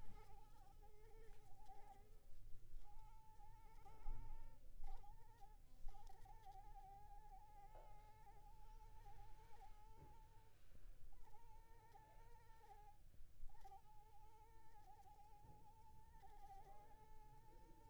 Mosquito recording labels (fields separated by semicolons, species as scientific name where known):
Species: Anopheles arabiensis; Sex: female; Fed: unfed; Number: one; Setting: cup